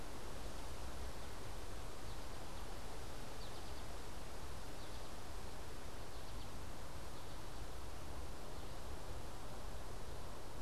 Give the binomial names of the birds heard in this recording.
Spinus tristis